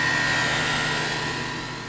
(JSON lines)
{"label": "anthrophony, boat engine", "recorder": "SoundTrap 500"}